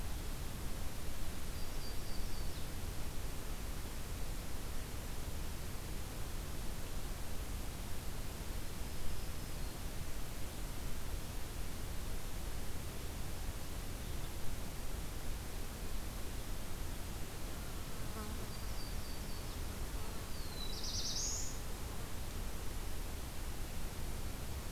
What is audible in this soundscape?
Yellow-rumped Warbler, Black-throated Blue Warbler